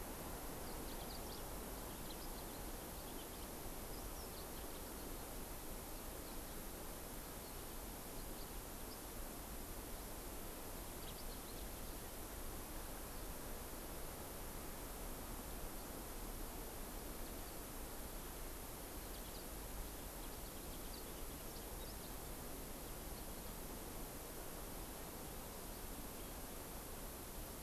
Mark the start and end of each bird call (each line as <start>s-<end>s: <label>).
0.5s-3.5s: Yellow-fronted Canary (Crithagra mozambica)
3.8s-5.2s: Yellow-fronted Canary (Crithagra mozambica)
10.9s-12.1s: Yellow-fronted Canary (Crithagra mozambica)
19.0s-22.1s: Yellow-fronted Canary (Crithagra mozambica)